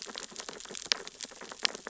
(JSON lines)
{"label": "biophony, sea urchins (Echinidae)", "recorder": "SoundTrap 600 or HydroMoth"}